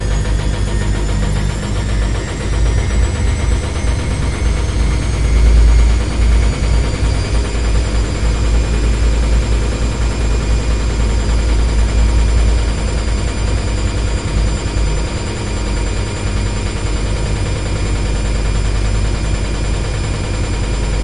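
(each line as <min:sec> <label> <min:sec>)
0:00.0 A washing machine runs steadily, producing rhythmic mechanical noises. 0:21.0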